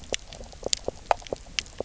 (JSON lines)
{"label": "biophony, knock croak", "recorder": "SoundTrap 300"}